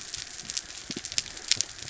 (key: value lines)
label: biophony
recorder: SoundTrap 300